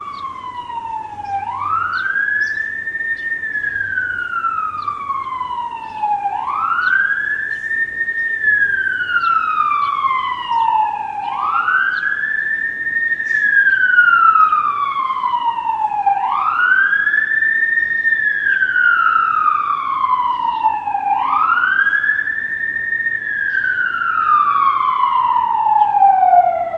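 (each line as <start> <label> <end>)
0.0 Ambulance sirens wail loudly, echoing outdoors. 26.8
6.5 A bird is singing repeatedly outdoors. 26.8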